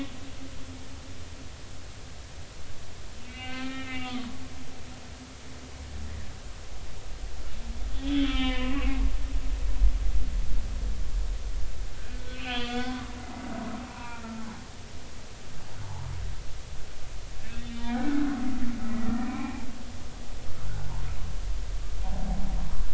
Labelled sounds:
3.2	4.4	humpback whale, 1.1 to 3.7 kHz
7.9	8.8	humpback whale, 0.96 to 3.7 kHz
12.3	14.6	humpback whale, 0.80 to 3.6 kHz
15.8	16.1	humpback whale, 0.80 to 1.1 kHz
17.6	18.2	humpback whale, 1.4 to 3.2 kHz
18.9	19.6	humpback whale, 0.96 to 2.5 kHz

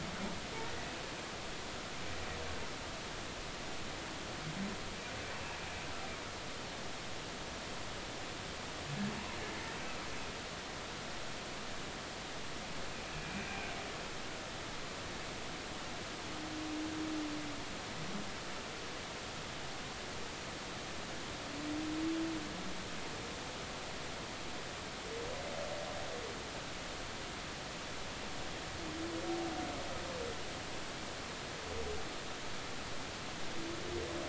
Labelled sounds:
13.2	13.7	humpback whale, 2.2 to 2.5 kHz

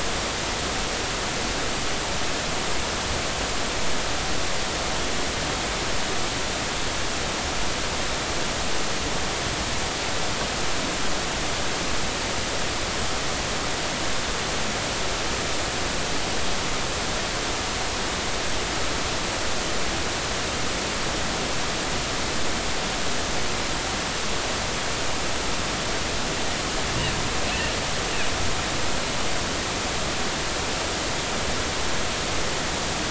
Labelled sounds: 27.5	27.7	humpback whale, 2.6 to 2.9 kHz

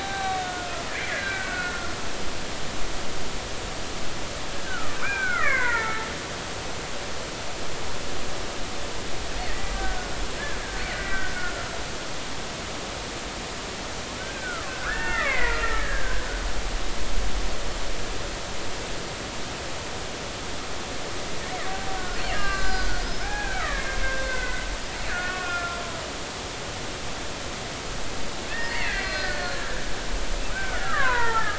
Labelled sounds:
0.0	0.8	killer whale, Bigg's (transient), 0.80 to 4.0 kHz
1.1	1.9	killer whale, Bigg's (transient), 1.3 to 2.4 kHz
4.7	6.1	killer whale, Bigg's (transient), 0.83 to 2.5 kHz
9.5	10.2	killer whale, Bigg's (transient), 1.4 to 2.0 kHz
10.6	11.7	killer whale, Bigg's (transient), 1.3 to 2.0 kHz
14.2	16.3	killer whale, Bigg's (transient), 0.99 to 2.8 kHz
22.0	24.0	killer whale, Bigg's (transient), 0.80 to 7.4 kHz
24.2	25.8	killer whale, Bigg's (transient), 1.3 to 2.7 kHz
28.5	29.8	killer whale, Bigg's (transient), 1.4 to 5.1 kHz
30.5	31.5	killer whale, Bigg's (transient), 0.83 to 2.0 kHz

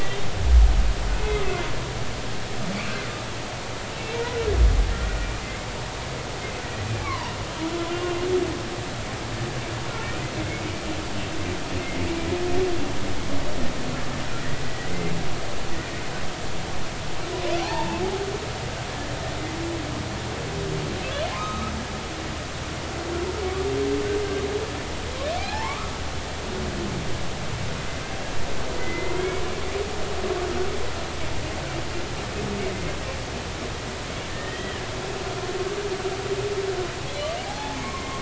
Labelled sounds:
0.0	0.3	humpback whale, 3.5 to 3.7 kHz
1.1	1.4	humpback whale, 2.5 to 2.6 kHz
3.9	4.2	humpback whale, 2.6 to 2.8 kHz
5.4	5.7	humpback whale, 2.0 to 2.2 kHz
6.6	7.4	humpback whale, 0.86 to 3.0 kHz
7.9	8.2	humpback whale, 2.7 to 2.9 kHz
10.4	10.7	humpback whale, 2.1 to 2.3 kHz
14.6	14.9	humpback whale, 1.9 to 2.0 kHz
17.6	18.0	humpback whale, 0.80 to 1.0 kHz
21.3	21.7	humpback whale, 0.99 to 1.4 kHz
25.4	26.0	humpback whale, 0.80 to 2.5 kHz
28.7	29.4	humpback whale, 2.0 to 2.3 kHz
34.3	34.8	humpback whale, 1.8 to 3.3 kHz
37.5	38.1	humpback whale, 0.80 to 1.2 kHz

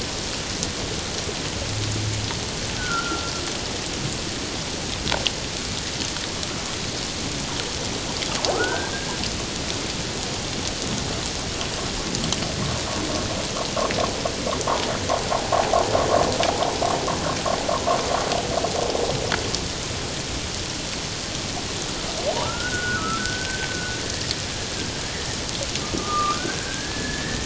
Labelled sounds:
2.8	3.3	humpback whale, 1.3 to 1.6 kHz
8.5	9.2	humpback whale, 1.2 to 1.8 kHz
15.5	15.8	humpback whale, 0.78 to 0.94 kHz
22.3	24.9	humpback whale, 0.88 to 1.7 kHz
25.8	27.4	humpback whale, 1.1 to 1.9 kHz

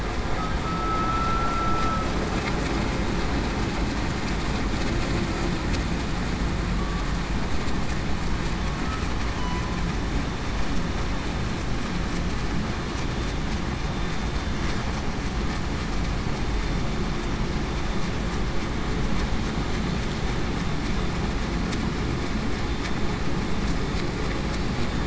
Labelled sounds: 0.6	2.1	humpback whale, 1.3 to 1.4 kHz

